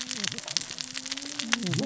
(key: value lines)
label: biophony, cascading saw
recorder: SoundTrap 600 or HydroMoth